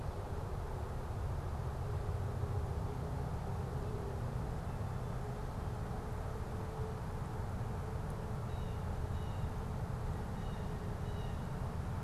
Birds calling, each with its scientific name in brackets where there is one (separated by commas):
Blue Jay (Cyanocitta cristata)